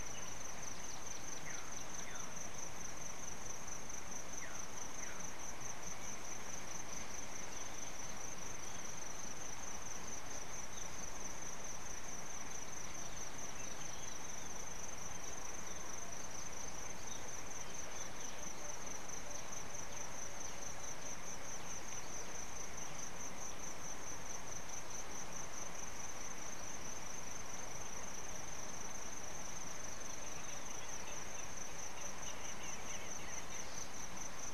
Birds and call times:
Hinde's Pied-Babbler (Turdoides hindei): 32.7s

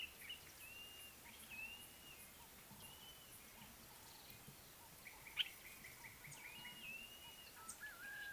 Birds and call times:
Blue-naped Mousebird (Urocolius macrourus): 1.9s
Common Bulbul (Pycnonotus barbatus): 5.4s

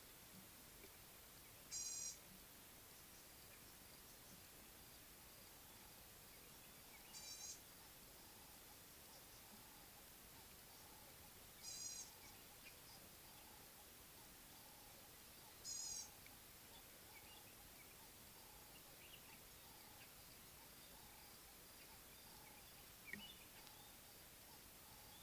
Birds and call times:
Gray-backed Camaroptera (Camaroptera brevicaudata): 2.0s, 11.9s, 15.9s
Ring-necked Dove (Streptopelia capicola): 18.6s
White-browed Robin-Chat (Cossypha heuglini): 23.3s

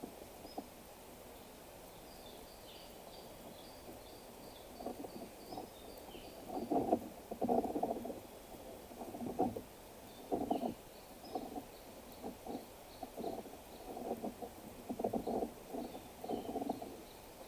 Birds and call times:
Gray Apalis (Apalis cinerea): 4.0s

